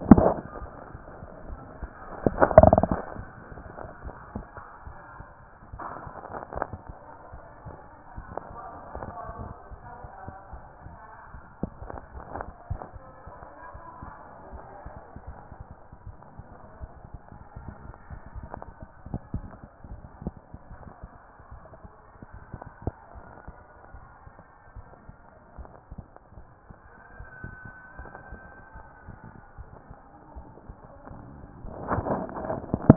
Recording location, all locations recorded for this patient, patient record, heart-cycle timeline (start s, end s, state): tricuspid valve (TV)
aortic valve (AV)+pulmonary valve (PV)+tricuspid valve (TV)
#Age: nan
#Sex: Female
#Height: nan
#Weight: nan
#Pregnancy status: True
#Murmur: Present
#Murmur locations: aortic valve (AV)+pulmonary valve (PV)
#Most audible location: pulmonary valve (PV)
#Systolic murmur timing: Early-systolic
#Systolic murmur shape: Plateau
#Systolic murmur grading: I/VI
#Systolic murmur pitch: Low
#Systolic murmur quality: Harsh
#Diastolic murmur timing: nan
#Diastolic murmur shape: nan
#Diastolic murmur grading: nan
#Diastolic murmur pitch: nan
#Diastolic murmur quality: nan
#Outcome: Normal
#Campaign: 2014 screening campaign
0.00	24.62	unannotated
24.62	24.76	diastole
24.76	24.86	S1
24.86	25.04	systole
25.04	25.14	S2
25.14	25.58	diastole
25.58	25.68	S1
25.68	25.92	systole
25.92	26.02	S2
26.02	26.36	diastole
26.36	26.46	S1
26.46	26.66	systole
26.66	26.74	S2
26.74	27.18	diastole
27.18	27.28	S1
27.28	27.44	systole
27.44	27.54	S2
27.54	27.98	diastole
27.98	28.10	S1
28.10	28.30	systole
28.30	28.40	S2
28.40	28.76	diastole
28.76	28.86	S1
28.86	29.06	systole
29.06	29.16	S2
29.16	29.58	diastole
29.58	29.68	S1
29.68	29.88	systole
29.88	29.96	S2
29.96	30.36	diastole
30.36	30.46	S1
30.46	30.68	systole
30.68	30.76	S2
30.76	31.12	diastole
31.12	31.20	S1
31.20	31.32	systole
31.32	31.46	S2
31.46	31.66	diastole
31.66	32.96	unannotated